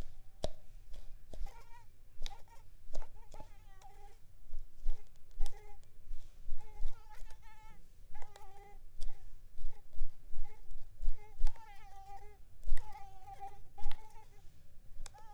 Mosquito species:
Mansonia uniformis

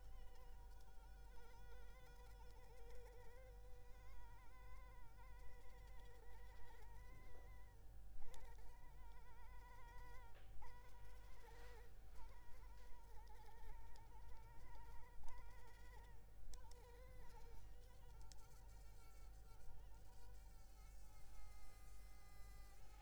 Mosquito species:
Anopheles arabiensis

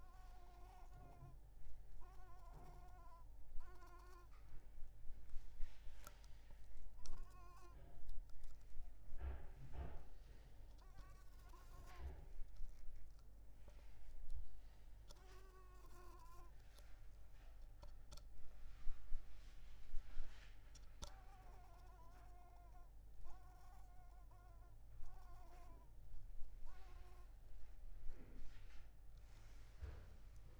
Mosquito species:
Mansonia africanus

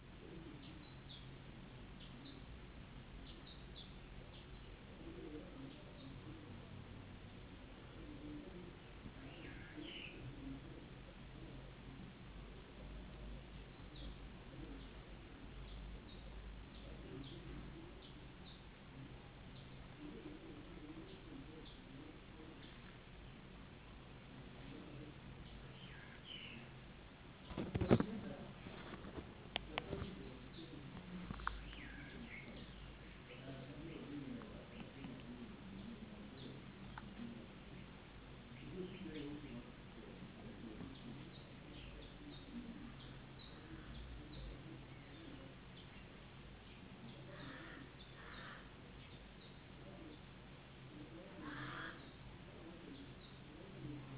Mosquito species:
no mosquito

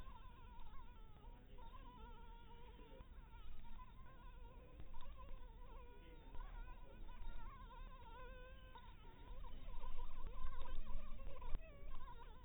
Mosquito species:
Anopheles dirus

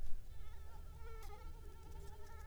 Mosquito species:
Anopheles arabiensis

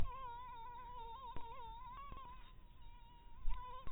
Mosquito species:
mosquito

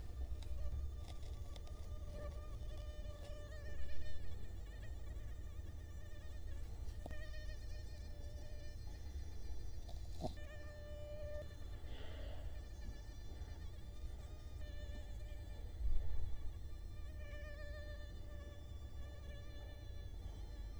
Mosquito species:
Culex quinquefasciatus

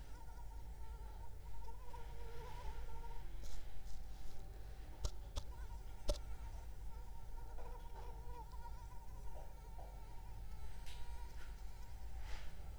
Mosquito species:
Anopheles arabiensis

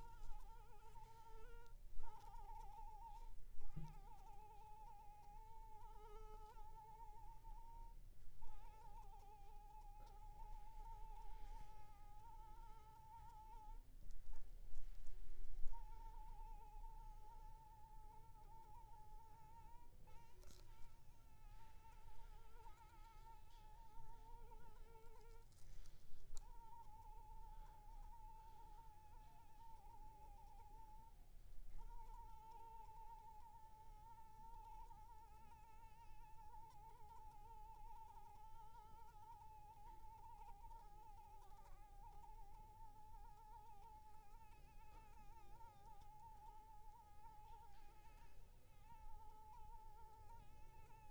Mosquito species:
Anopheles arabiensis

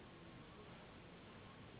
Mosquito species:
Anopheles gambiae s.s.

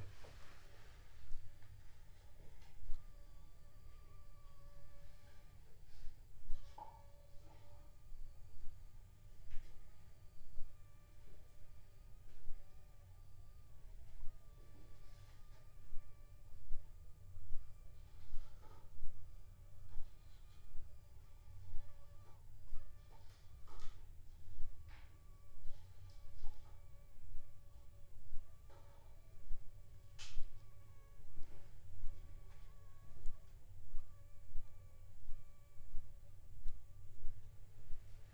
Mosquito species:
Aedes aegypti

